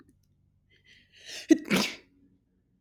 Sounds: Sneeze